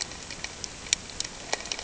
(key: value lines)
label: ambient
recorder: HydroMoth